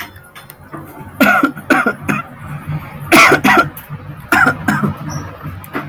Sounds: Sniff